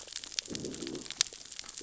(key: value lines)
label: biophony, growl
recorder: SoundTrap 600 or HydroMoth